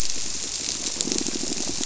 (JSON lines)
{"label": "biophony, squirrelfish (Holocentrus)", "recorder": "SoundTrap 300"}